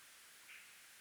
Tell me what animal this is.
Barbitistes serricauda, an orthopteran